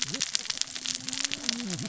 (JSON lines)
{"label": "biophony, cascading saw", "recorder": "SoundTrap 600 or HydroMoth"}